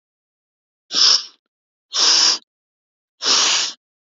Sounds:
Sniff